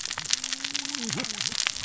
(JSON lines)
{"label": "biophony, cascading saw", "recorder": "SoundTrap 600 or HydroMoth"}